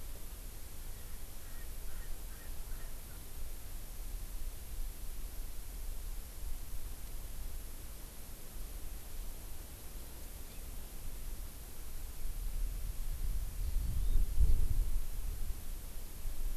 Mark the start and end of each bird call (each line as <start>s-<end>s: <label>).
0.8s-3.2s: Erckel's Francolin (Pternistis erckelii)
10.4s-10.6s: Hawaii Amakihi (Chlorodrepanis virens)
13.6s-14.1s: Hawaii Amakihi (Chlorodrepanis virens)